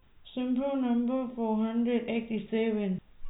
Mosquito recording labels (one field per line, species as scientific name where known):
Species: no mosquito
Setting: cup